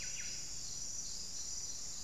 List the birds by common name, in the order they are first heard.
Buff-breasted Wren, Ruddy Quail-Dove